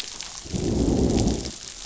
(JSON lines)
{"label": "biophony, growl", "recorder": "SoundTrap 500"}